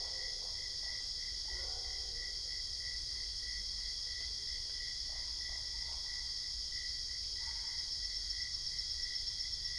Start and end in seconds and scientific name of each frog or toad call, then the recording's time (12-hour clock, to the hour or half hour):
0.0	1.2	Boana lundii
4.9	6.7	Boana lundii
7.2	8.1	Boana albopunctata
~midnight